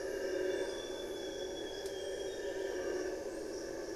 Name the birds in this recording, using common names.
Amazonian Grosbeak